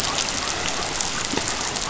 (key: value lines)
label: biophony
recorder: SoundTrap 500